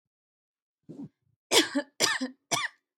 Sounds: Cough